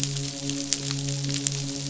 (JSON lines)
{"label": "biophony, midshipman", "recorder": "SoundTrap 500"}